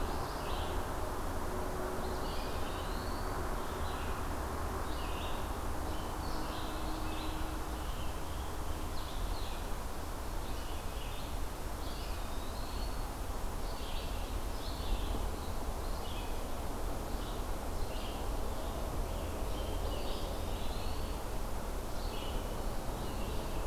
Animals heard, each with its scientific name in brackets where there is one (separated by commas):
Red-eyed Vireo (Vireo olivaceus), Eastern Wood-Pewee (Contopus virens), Scarlet Tanager (Piranga olivacea)